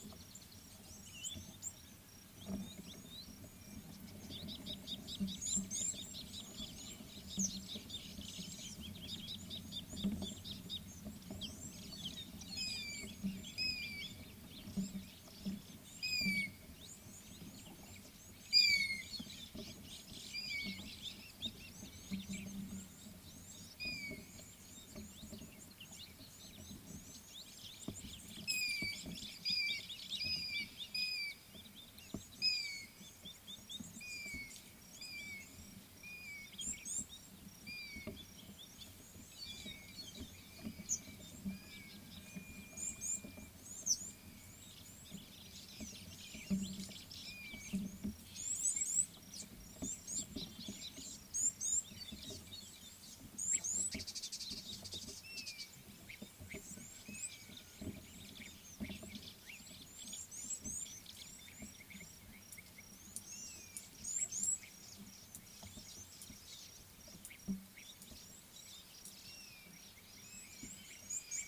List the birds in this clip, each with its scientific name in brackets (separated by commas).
African Gray Hornbill (Lophoceros nasutus), Lesser Masked-Weaver (Ploceus intermedius), Gabar Goshawk (Micronisus gabar), Scarlet-chested Sunbird (Chalcomitra senegalensis), Red-cheeked Cordonbleu (Uraeginthus bengalus)